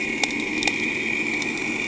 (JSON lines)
{"label": "anthrophony, boat engine", "recorder": "HydroMoth"}